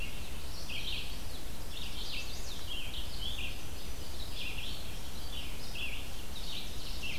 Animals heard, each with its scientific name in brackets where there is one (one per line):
Red-eyed Vireo (Vireo olivaceus)
Ovenbird (Seiurus aurocapilla)
Chestnut-sided Warbler (Setophaga pensylvanica)